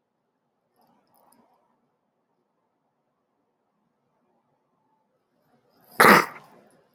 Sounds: Sneeze